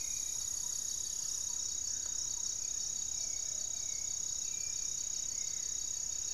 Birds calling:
Hauxwell's Thrush (Turdus hauxwelli)
Black-faced Antthrush (Formicarius analis)
Thrush-like Wren (Campylorhynchus turdinus)
Plumbeous Pigeon (Patagioenas plumbea)
Plain-winged Antshrike (Thamnophilus schistaceus)

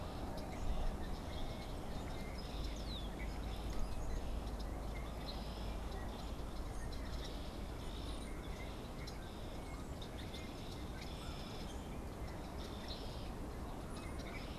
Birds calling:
Brown-headed Cowbird (Molothrus ater)
unidentified bird
Red-winged Blackbird (Agelaius phoeniceus)

